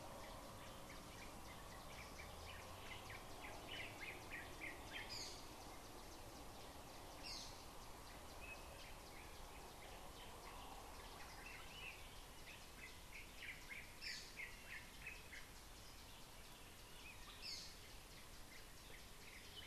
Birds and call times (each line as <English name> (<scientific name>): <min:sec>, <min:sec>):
Yellow-whiskered Greenbul (Eurillas latirostris): 0:04.4, 0:13.8
Gray-throated Barbet (Gymnobucco bonapartei): 0:05.2, 0:14.2